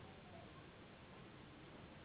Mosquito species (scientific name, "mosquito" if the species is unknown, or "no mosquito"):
Anopheles gambiae s.s.